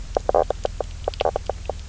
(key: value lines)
label: biophony, knock croak
recorder: SoundTrap 300